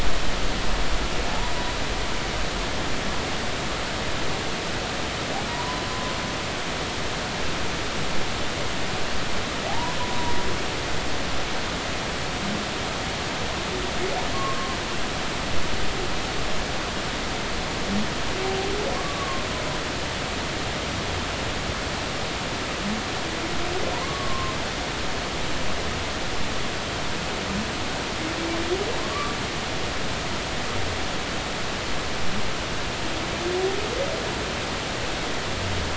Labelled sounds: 5.5	5.8	humpback whale, 0.90 to 1.1 kHz
9.7	10.4	humpback whale, 0.80 to 1.1 kHz
14.3	14.8	humpback whale, 1.0 to 1.2 kHz
18.9	19.4	humpback whale, 1.0 to 1.2 kHz
23.9	24.6	humpback whale, 0.90 to 1.2 kHz
29.0	29.4	humpback whale, 0.99 to 1.2 kHz

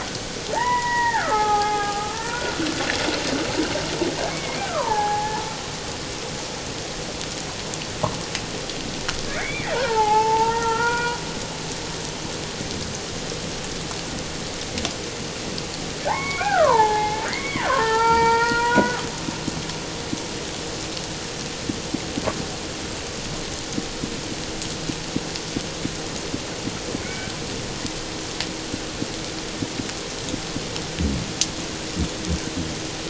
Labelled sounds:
1.3	2.4	killer whale, Bigg's (transient), 0.78 to 2.6 kHz
4.3	5.4	killer whale, Bigg's (transient), call T04, 0.78 to 2.3 kHz
9.3	11.2	killer whale, Bigg's (transient), 0.78 to 2.5 kHz
16.1	19.0	killer whale, Bigg's (transient), call T04, 0.78 to 4.8 kHz
27.0	27.3	killer whale, Bigg's (transient), call T01, 1.4 to 2.4 kHz

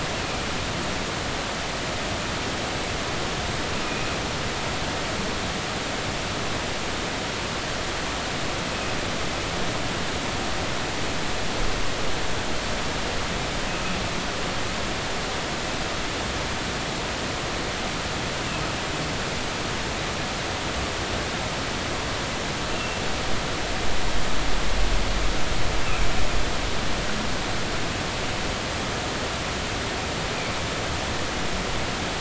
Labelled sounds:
22.7	23.0	humpback whale, 2.6 to 2.8 kHz
25.8	26.1	humpback whale, 2.2 to 2.8 kHz

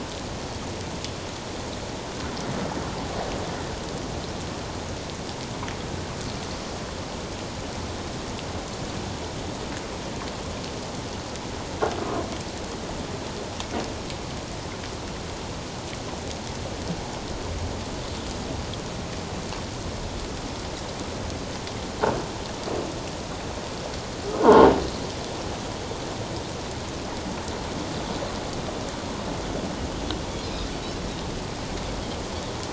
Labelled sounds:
24.4	24.7	croaking sound likely from a nearby submerged object, 0.81 to 1.5 kHz
30.4	30.7	Pacific white-sided dolphin, 3.6 to 5.4 kHz

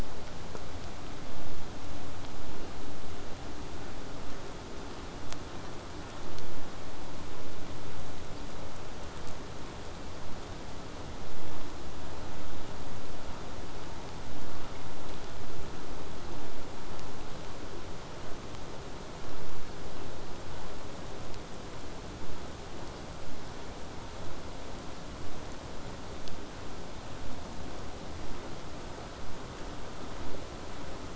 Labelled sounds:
21.2	26.2	vessel noise, 0 to 8.0 kHz

